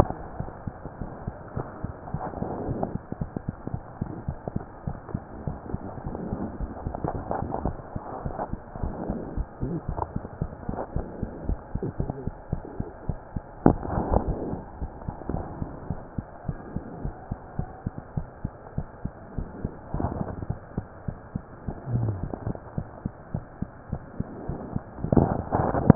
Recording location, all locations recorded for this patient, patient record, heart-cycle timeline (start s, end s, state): mitral valve (MV)
aortic valve (AV)+pulmonary valve (PV)+tricuspid valve (TV)+mitral valve (MV)
#Age: Child
#Sex: Male
#Height: 109.0 cm
#Weight: 25.5 kg
#Pregnancy status: False
#Murmur: Absent
#Murmur locations: nan
#Most audible location: nan
#Systolic murmur timing: nan
#Systolic murmur shape: nan
#Systolic murmur grading: nan
#Systolic murmur pitch: nan
#Systolic murmur quality: nan
#Diastolic murmur timing: nan
#Diastolic murmur shape: nan
#Diastolic murmur grading: nan
#Diastolic murmur pitch: nan
#Diastolic murmur quality: nan
#Outcome: Normal
#Campaign: 2015 screening campaign
0.00	15.88	unannotated
15.88	15.98	S1
15.98	16.10	systole
16.10	16.24	S2
16.24	16.46	diastole
16.46	16.58	S1
16.58	16.72	systole
16.72	16.82	S2
16.82	17.00	diastole
17.00	17.14	S1
17.14	17.26	systole
17.26	17.38	S2
17.38	17.56	diastole
17.56	17.70	S1
17.70	17.82	systole
17.82	17.94	S2
17.94	18.13	diastole
18.13	18.26	S1
18.26	18.40	systole
18.40	18.50	S2
18.50	18.76	diastole
18.76	18.86	S1
18.86	19.00	systole
19.00	19.12	S2
19.12	19.36	diastole
19.36	19.48	S1
19.48	19.56	systole
19.56	19.70	S2
19.70	19.92	diastole
19.92	20.05	S1
20.05	20.18	systole
20.18	20.28	S2
20.28	20.48	diastole
20.48	20.60	S1
20.60	20.74	systole
20.74	20.86	S2
20.86	21.05	diastole
21.05	21.16	S1
21.16	21.33	systole
21.33	21.41	S2
21.41	21.65	diastole
21.65	21.75	S1
21.75	22.76	unannotated
22.76	22.88	S1
22.88	23.02	systole
23.02	23.12	S2
23.12	23.32	diastole
23.32	23.44	S1
23.44	23.58	systole
23.58	23.68	S2
23.68	23.92	diastole
23.92	24.04	S1
24.04	24.16	systole
24.16	24.26	S2
24.26	24.48	diastole
24.48	24.62	S1
24.62	24.74	systole
24.74	24.86	S2
24.86	25.02	diastole
25.02	25.10	S1
25.10	25.95	unannotated